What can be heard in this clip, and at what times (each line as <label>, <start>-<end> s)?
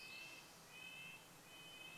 Red-breasted Nuthatch song, 0-2 s
Spotted Towhee song, 0-2 s